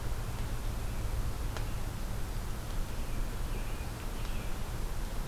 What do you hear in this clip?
American Robin